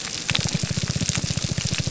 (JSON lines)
{"label": "biophony, grouper groan", "recorder": "SoundTrap 300"}